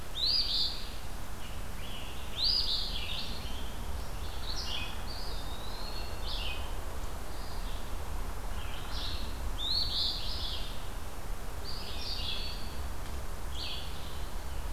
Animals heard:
Scarlet Tanager (Piranga olivacea)
Red-eyed Vireo (Vireo olivaceus)
Eastern Wood-Pewee (Contopus virens)
Eastern Phoebe (Sayornis phoebe)

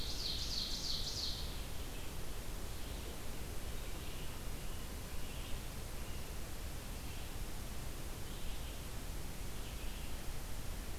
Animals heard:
Ovenbird (Seiurus aurocapilla)
Red-eyed Vireo (Vireo olivaceus)

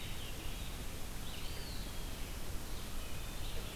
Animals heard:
Red-eyed Vireo (Vireo olivaceus)
Wood Thrush (Hylocichla mustelina)
Eastern Wood-Pewee (Contopus virens)

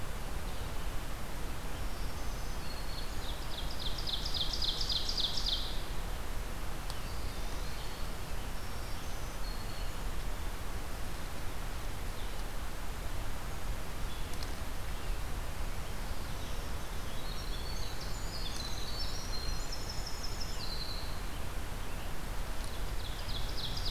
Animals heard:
Ovenbird (Seiurus aurocapilla)
Eastern Wood-Pewee (Contopus virens)
Winter Wren (Troglodytes hiemalis)
Blue-headed Vireo (Vireo solitarius)
Black-throated Green Warbler (Setophaga virens)

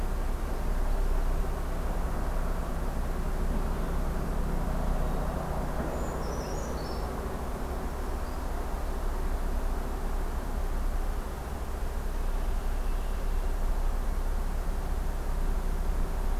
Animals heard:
Brown Creeper (Certhia americana)
Red-winged Blackbird (Agelaius phoeniceus)
Black-throated Green Warbler (Setophaga virens)

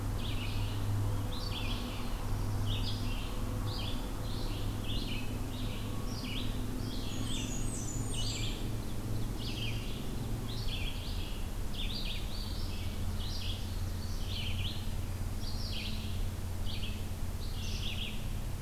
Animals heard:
Blackburnian Warbler (Setophaga fusca)
Ovenbird (Seiurus aurocapilla)
Red-eyed Vireo (Vireo olivaceus)

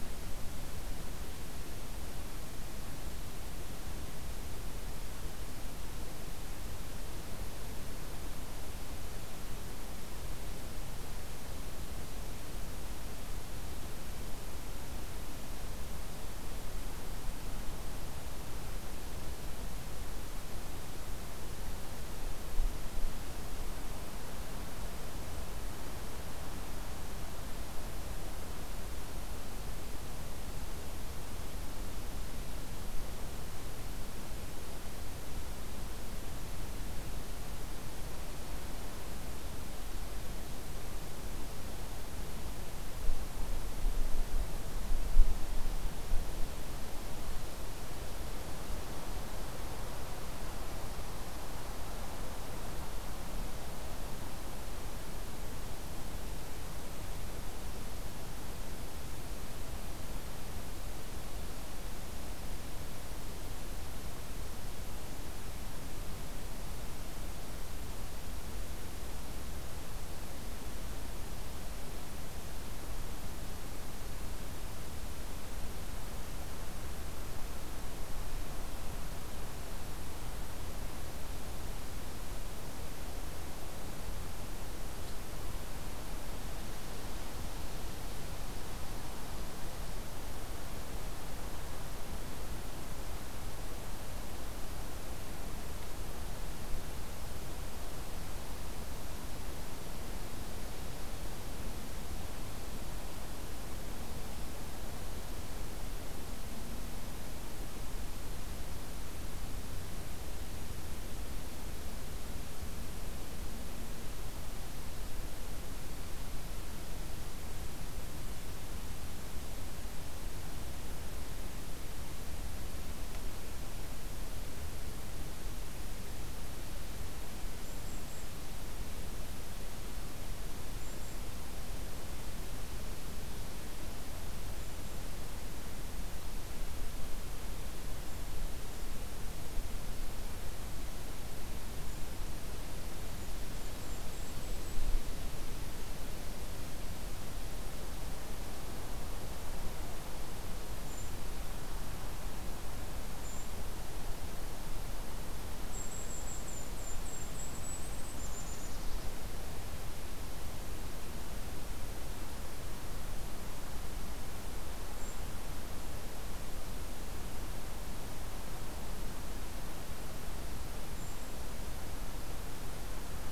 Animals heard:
Golden-crowned Kinglet (Regulus satrapa)

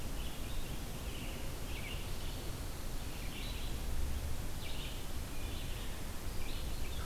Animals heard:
Red-eyed Vireo (Vireo olivaceus)

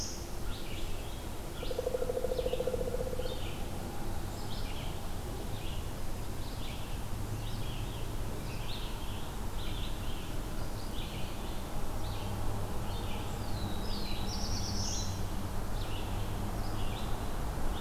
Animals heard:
Red-eyed Vireo (Vireo olivaceus)
Black-throated Blue Warbler (Setophaga caerulescens)
Pileated Woodpecker (Dryocopus pileatus)

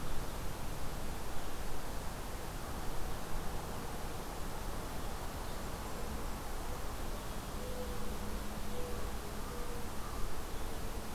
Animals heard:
American Crow (Corvus brachyrhynchos)
Mourning Dove (Zenaida macroura)

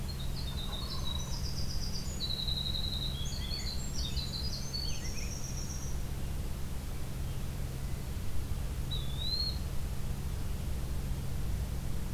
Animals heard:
Eastern Wood-Pewee (Contopus virens)
Winter Wren (Troglodytes hiemalis)
American Robin (Turdus migratorius)
Wild Turkey (Meleagris gallopavo)

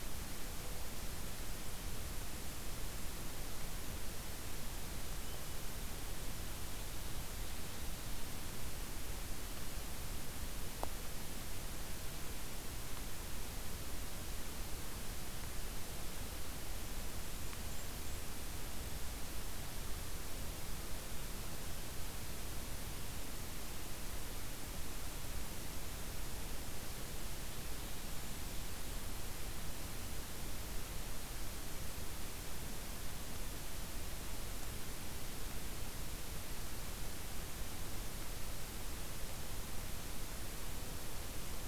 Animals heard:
Blackburnian Warbler (Setophaga fusca)

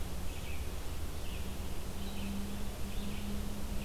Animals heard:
Red-eyed Vireo (Vireo olivaceus)

